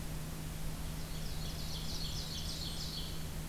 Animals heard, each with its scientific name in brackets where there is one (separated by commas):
Blackburnian Warbler (Setophaga fusca), Ovenbird (Seiurus aurocapilla)